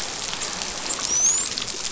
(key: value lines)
label: biophony, dolphin
recorder: SoundTrap 500